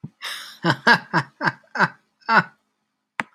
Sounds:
Laughter